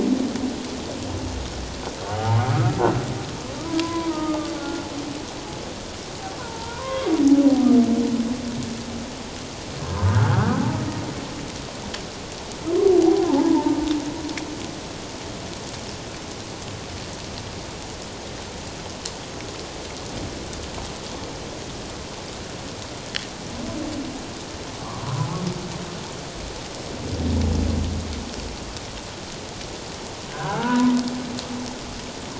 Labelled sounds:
2.1	2.8	humpback whale, 0.78 to 1.5 kHz
3.8	4.9	humpback whale, 0.88 to 1.5 kHz
6.4	7.1	humpback whale, 0.88 to 1.2 kHz
9.8	10.7	humpback whale, 0.97 to 1.8 kHz
13.0	13.7	humpback whale, 0.78 to 1.1 kHz
24.8	25.1	humpback whale, 0.94 to 1.2 kHz
30.3	31.0	humpback whale, 0.78 to 1.7 kHz

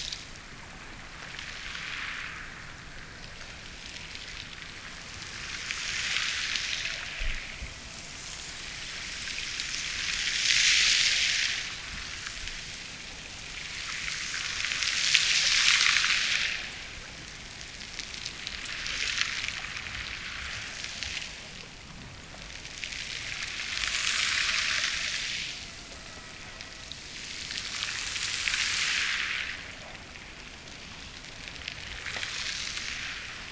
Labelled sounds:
6.6	8.8	killer whale, Bigg's (transient), Gulf of Alaska transient, 0.37 to 1.0 kHz
25.5	27.1	killer whale, Bigg's (transient), Gulf of Alaska transient, 0.37 to 2.1 kHz

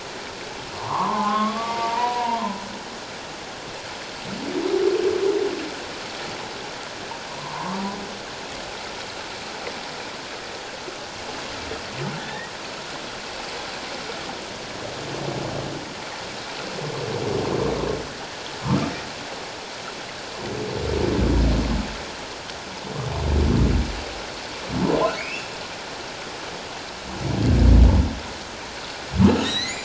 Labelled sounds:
0.8	2.4	humpback whale, 0.78 to 1.3 kHz
7.3	7.8	humpback whale, 0.88 to 1.2 kHz
12.2	12.5	humpback whale, 1.6 to 3.8 kHz
25.2	25.5	humpback whale, 2.1 to 2.8 kHz
29.4	29.8	humpback whale, 1.7 to 5.8 kHz

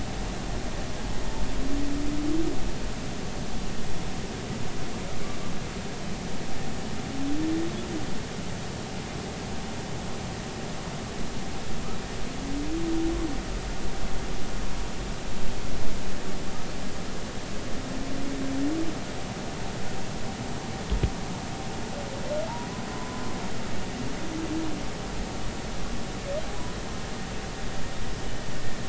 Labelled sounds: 22.9	23.2	humpback whale, 0.96 to 1.1 kHz

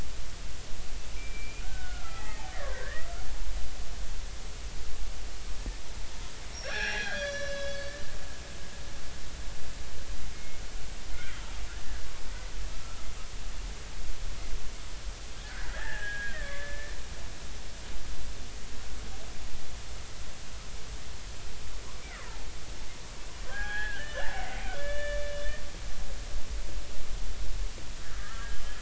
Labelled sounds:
1.2	3.1	killer whale, Bigg's (transient), 0.80 to 2.5 kHz
6.5	7.9	killer whale, Bigg's (transient), 0.80 to 5.9 kHz
10.3	10.6	killer whale, Bigg's (transient), 2.1 to 2.2 kHz
11.1	11.4	killer whale, Bigg's (transient), 1.2 to 1.6 kHz
15.4	16.9	killer whale, Bigg's (transient), 0.80 to 2.0 kHz
23.5	25.3	killer whale, Bigg's (transient), 0.80 to 3.6 kHz
28.1	28.6	killer whale, Bigg's (transient), 1.2 to 1.7 kHz

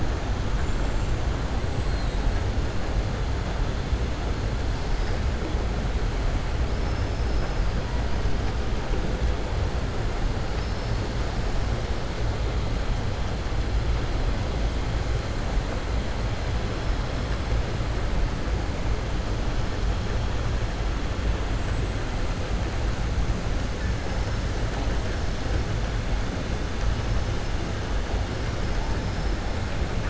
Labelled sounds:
0.5	1.2	killer whale, southern resident, 6.4 to 7.9 kHz
6.7	7.6	killer whale, southern resident, 4.4 to 6.1 kHz

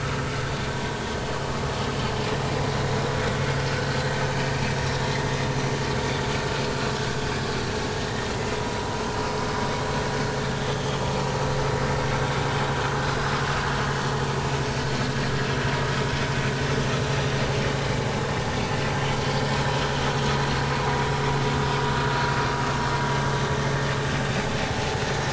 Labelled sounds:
8.3	8.6	vessel noise, 2.0 to 2.1 kHz
10.7	11.0	vessel noise, 3.0 to 3.4 kHz
20.2	20.6	vessel noise, 4.0 to 4.3 kHz

